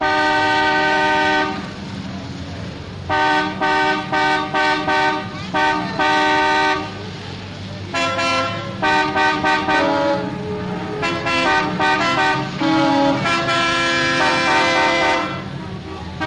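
0.0s A truck horn sounds repeatedly in a rhythmic pattern. 1.6s
3.1s A truck honks loudly in a rhythm on the street. 6.9s
7.9s A truck honks twice nearby on the street. 8.8s
8.8s A truck honks repeatedly on the nearby street. 9.7s
9.7s A truck honks once in the distance. 10.3s
11.0s Multiple trucks honking together rhythmically on the street. 15.3s

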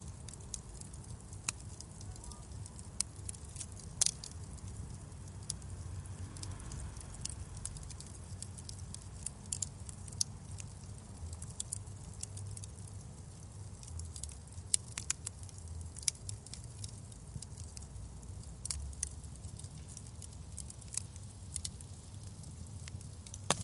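0.0s Ambient crackling sounds of a fireplace. 23.6s
1.4s Fire crackling once in the fireplace. 1.6s
2.9s Fire crackling once in the fireplace. 3.2s
3.9s Fire crackling once in the fireplace. 4.3s
9.1s Fire crackling in the fireplace. 10.7s
14.6s Fire crackling in the fireplace. 16.9s
18.5s Fire crackling in the fireplace. 19.2s
20.5s Fire crackling in the fireplace. 21.7s

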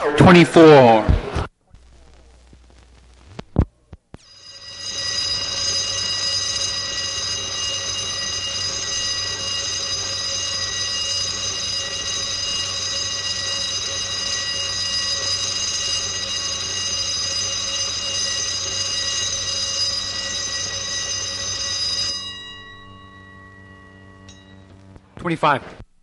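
0.0s A man speaks. 1.7s
4.3s A metallic alarm bell ringing continuously. 22.8s
25.1s A man is speaking. 25.7s

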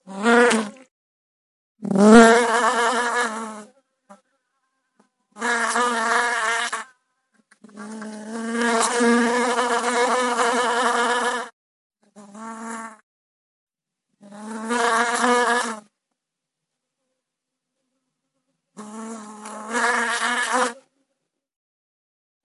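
0.1s An insect flies by with a high-pitched buzzing of its wings that fades in and out. 0.7s
1.8s An insect flies by with a high-pitched buzzing of its wings that fades in and out. 2.5s
2.4s An insect buzzes nearby as it moves its wings. 4.2s
5.4s An insect buzzes nearby as it moves its wings. 6.9s
7.6s An insect buzzes quietly in place. 8.5s
8.5s An insect is buzzing loudly close to the observer. 11.5s
12.2s An insect buzzing quietly. 12.9s
14.3s An insect is buzzing loudly close to the observer. 15.8s
18.7s An insect buzzing quietly. 19.7s
19.7s An insect is buzzing loudly close to the observer. 20.8s

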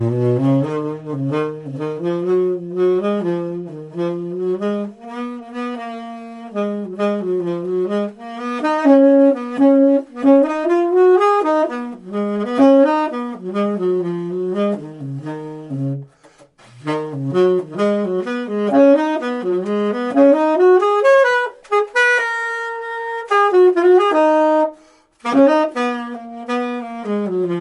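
0.0s A person plays the saxophone rhythmically, gradually increasing in volume over time. 27.6s
16.1s A muffled inhale from a person in the distance. 16.8s
24.7s A muffled inhale from a person in the distance. 25.2s

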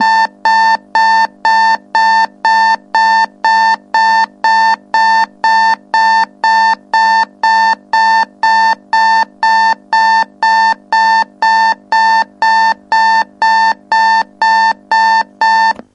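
0.0s Repetitive high-pitched electronic alert beeps. 15.9s

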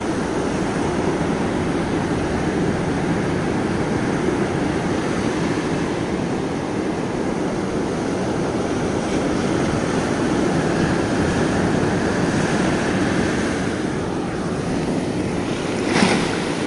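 0.0s The sea sounds steadily in the distance. 16.7s
15.9s A single loud water splash. 16.3s

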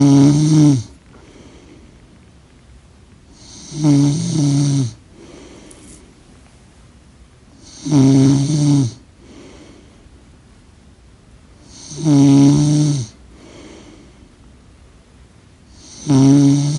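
0.0s Someone is snoring while sleeping. 0.9s
1.1s Someone is breathing out while sleeping. 2.3s
3.3s Someone is snoring while sleeping. 5.1s
5.1s Someone is breathing out while sleeping. 6.1s
7.5s Someone is snoring while sleeping. 9.0s
9.1s Someone is breathing out while sleeping. 10.0s
11.7s Someone is snoring while sleeping. 13.1s
13.2s Someone is breathing out while sleeping. 14.2s
15.8s Someone is snoring while sleeping. 16.8s

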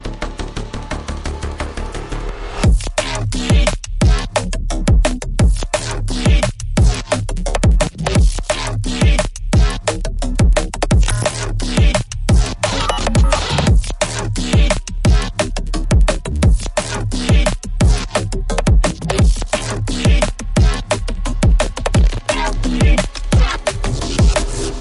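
0.0s An electronic bass sounds repeatedly in a rhythmic pattern. 2.4s
0.0s White noise gradually increases in volume. 2.6s
2.6s A kick drum is playing. 2.8s
2.6s An electronic hi-hat sound repeats rhythmically. 24.8s
2.9s A dubstep growl. 4.3s
3.0s An electronic snare drum sound. 5.1s
3.4s A kick drum is playing. 4.2s
4.3s Short electronic blips repeat rhythmically with increasing pitch. 5.4s
4.8s A kick drum is playing. 5.6s
5.7s An electronic snare drum sound. 5.8s
5.7s A dubstep growl. 7.1s
6.2s A kick drum is playing. 7.0s
6.4s An electronic snare drum sound. 6.5s
7.0s Short electronic blips repeat rhythmically with increasing pitch. 8.1s
7.1s An electronic snare drum sound. 7.2s
7.6s A kick drum is playing. 8.4s
7.8s An electronic snare drum sound. 7.9s
8.5s An electronic snare drum sound. 8.6s
8.5s A dubstep growl. 9.9s
9.0s A kick drum is playing. 9.7s
9.2s An electronic snare drum sound. 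12.0s
9.8s Short electronic blips repeat rhythmically with increasing pitch. 10.9s
10.4s A kick drum is playing. 11.1s
11.1s An electronic blip sounds distorted. 11.2s
11.2s A dubstep growl. 12.6s
11.7s A kick drum is playing. 12.5s
12.6s A loud electronic dubstep sound plays. 13.7s
12.6s Short electronic blips repeat rhythmically. 13.7s
12.6s An electronic snare drum sound. 12.7s
13.1s Electronic white noise gradually increases in volume and pitch. 24.8s
13.1s A kick drum is playing. 13.9s
13.3s An electronic snare drum sound. 13.4s
14.0s An electronic snare drum sound. 14.1s
14.0s A dubstep growl. 15.3s
14.5s A kick drum is playing. 15.2s
14.7s An electronic snare drum sound. 14.8s
15.3s Short electronic blips repeat rhythmically with increasing pitch. 16.4s
15.4s An electronic snare drum sound. 15.5s
15.9s A kick drum is playing. 16.6s
16.1s An electronic snare drum sound. 18.9s
16.7s A dubstep growl. 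18.1s
17.3s A kick drum is playing. 18.0s
18.1s Short electronic blips repeat rhythmically with increasing pitch. 19.2s
18.6s A kick drum is playing. 19.4s
19.5s An electronic snare drum sound. 19.6s
19.5s A dubstep growl. 20.9s
20.0s A kick drum is playing. 20.8s
20.2s An electronic snare drum sound. 20.3s
20.8s Short electronic blips repeat rhythmically with increasing pitch. 21.9s
20.9s An electronic snare drum sound. 21.0s
21.4s A kick drum is playing. 22.1s
21.6s An electronic snare drum sound. 24.4s
22.3s A dubstep growl sound, slightly muffled. 23.6s
22.8s A kick drum is playing. 23.5s
23.6s An electronic blip. 23.8s
23.8s A dubstep growl rhythmically repeats with increasing pitch. 24.8s
24.1s A kick drum is playing. 24.3s

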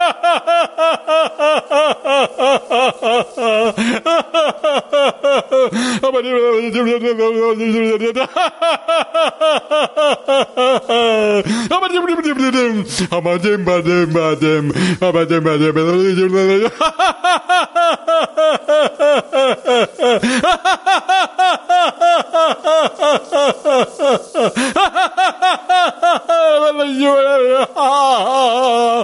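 0.0s A man laughs. 6.1s
6.1s A man speaking incomprehensibly. 8.3s
8.4s A man laughs. 11.7s
11.7s A man is speaking rhythmically in gibberish. 16.8s
16.8s A man laughs. 26.3s
26.3s A man laughs hysterically. 29.0s

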